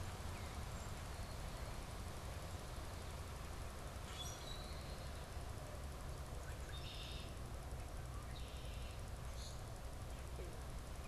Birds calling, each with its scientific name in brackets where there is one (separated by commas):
Common Grackle (Quiscalus quiscula), Red-winged Blackbird (Agelaius phoeniceus)